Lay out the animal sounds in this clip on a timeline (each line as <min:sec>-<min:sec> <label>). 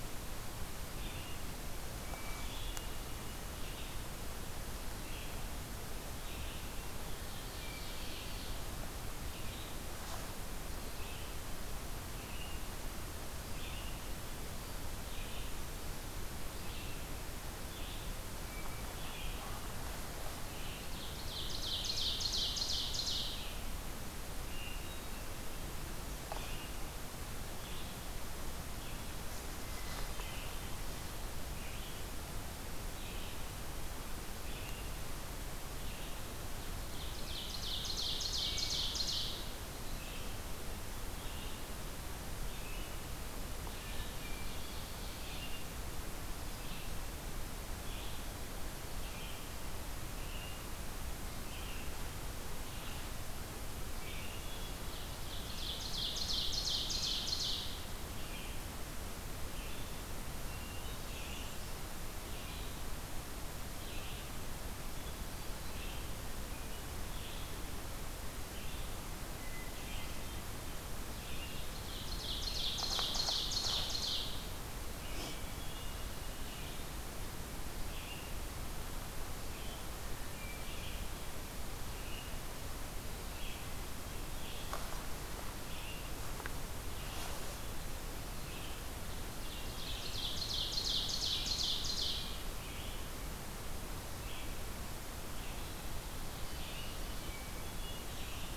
0:00.0-0:53.0 Red-eyed Vireo (Vireo olivaceus)
0:01.9-0:03.4 Hermit Thrush (Catharus guttatus)
0:06.8-0:08.9 Ovenbird (Seiurus aurocapilla)
0:18.2-0:19.4 Hermit Thrush (Catharus guttatus)
0:20.5-0:23.7 Ovenbird (Seiurus aurocapilla)
0:24.3-0:25.5 Hermit Thrush (Catharus guttatus)
0:29.5-0:30.8 Hermit Thrush (Catharus guttatus)
0:36.8-0:39.6 Ovenbird (Seiurus aurocapilla)
0:38.3-0:39.1 Hermit Thrush (Catharus guttatus)
0:43.5-0:44.7 Hermit Thrush (Catharus guttatus)
0:43.7-0:45.6 Ovenbird (Seiurus aurocapilla)
0:53.9-0:54.4 Red-eyed Vireo (Vireo olivaceus)
0:54.1-0:54.9 Hermit Thrush (Catharus guttatus)
0:54.8-0:57.9 Ovenbird (Seiurus aurocapilla)
0:58.2-1:38.6 Red-eyed Vireo (Vireo olivaceus)
1:00.3-1:01.3 Hermit Thrush (Catharus guttatus)
1:00.9-1:01.9 American Redstart (Setophaga ruticilla)
1:04.7-1:05.9 Hermit Thrush (Catharus guttatus)
1:09.0-1:10.6 Hermit Thrush (Catharus guttatus)
1:11.5-1:14.5 Ovenbird (Seiurus aurocapilla)
1:14.9-1:16.2 Hermit Thrush (Catharus guttatus)
1:19.7-1:21.0 Hermit Thrush (Catharus guttatus)
1:29.4-1:32.6 Ovenbird (Seiurus aurocapilla)
1:36.3-1:38.3 Hermit Thrush (Catharus guttatus)